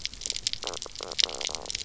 {"label": "biophony, knock croak", "recorder": "SoundTrap 300"}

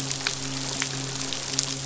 {"label": "biophony, midshipman", "recorder": "SoundTrap 500"}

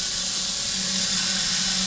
{"label": "anthrophony, boat engine", "recorder": "SoundTrap 500"}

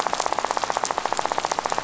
{"label": "biophony, rattle", "recorder": "SoundTrap 500"}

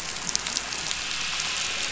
{"label": "anthrophony, boat engine", "recorder": "SoundTrap 500"}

